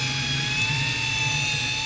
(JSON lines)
{"label": "anthrophony, boat engine", "recorder": "SoundTrap 500"}